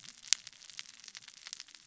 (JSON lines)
{"label": "biophony, cascading saw", "recorder": "SoundTrap 600 or HydroMoth"}